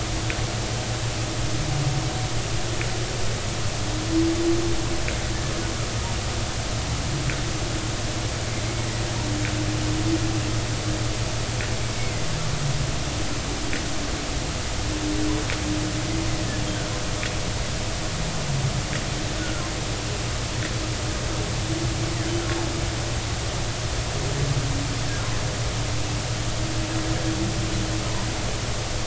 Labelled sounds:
11.9	12.2	humpback whale, 2.0 to 2.3 kHz
19.4	19.6	humpback whale, 1.3 to 1.5 kHz

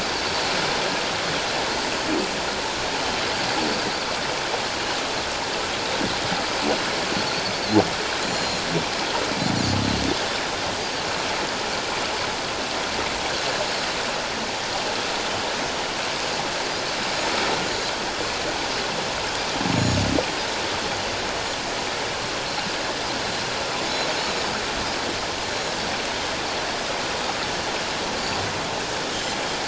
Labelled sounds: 8.3	8.6	Pacific white-sided dolphin, 4.0 to 7.2 kHz
13.5	13.8	Pacific white-sided dolphin, 6.6 to 6.8 kHz
19.7	20.0	Pacific white-sided dolphin, 6.2 to 6.9 kHz

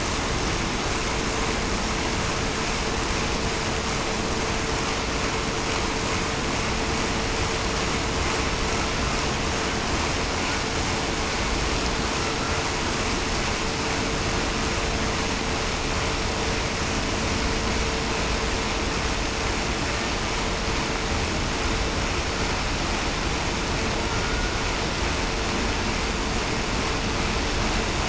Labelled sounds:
24.2	24.6	killer whale, Bigg's (transient), 1.4 to 1.5 kHz

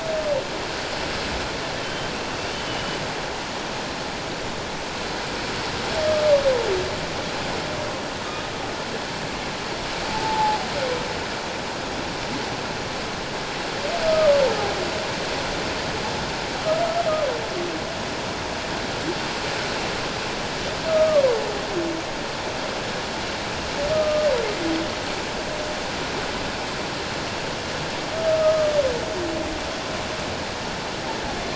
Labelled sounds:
1.8	2.1	humpback whale, 3.0 to 3.2 kHz
2.7	3.0	humpback whale, 2.8 to 3.1 kHz
10.1	10.7	humpback whale, 0.78 to 1.0 kHz
20.9	21.2	humpback whale, 1.1 to 1.3 kHz
23.9	24.3	humpback whale, 1.2 to 1.3 kHz
28.4	28.7	humpback whale, 1.2 to 1.3 kHz

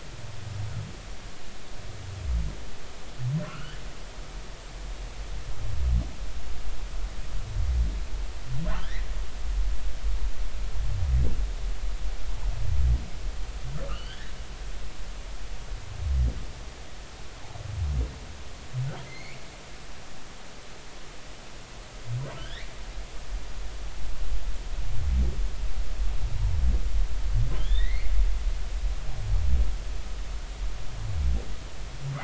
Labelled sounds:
3.5	3.8	humpback whale, 1.2 to 3.5 kHz
8.7	9.1	humpback whale, 1.2 to 2.2 kHz
13.9	14.3	humpback whale, 1.5 to 3.5 kHz
19.1	19.4	humpback whale, 2.0 to 2.4 kHz
22.4	22.7	humpback whale, 1.5 to 4.0 kHz
27.6	28.1	humpback whale, 1.6 to 3.9 kHz

